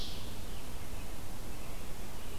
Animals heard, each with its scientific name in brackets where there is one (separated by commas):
Ovenbird (Seiurus aurocapilla), American Robin (Turdus migratorius)